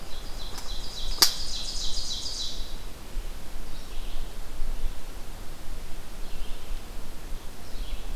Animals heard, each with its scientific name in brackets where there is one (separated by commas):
Ovenbird (Seiurus aurocapilla), Red-eyed Vireo (Vireo olivaceus)